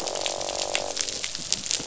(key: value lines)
label: biophony, croak
recorder: SoundTrap 500